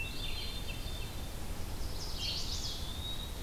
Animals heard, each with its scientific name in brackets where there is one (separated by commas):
Eastern Wood-Pewee (Contopus virens), Hermit Thrush (Catharus guttatus), Chestnut-sided Warbler (Setophaga pensylvanica), Red-eyed Vireo (Vireo olivaceus)